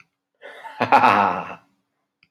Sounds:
Laughter